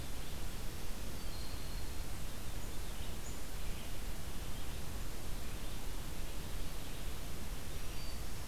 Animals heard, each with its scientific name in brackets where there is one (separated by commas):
Black-throated Green Warbler (Setophaga virens)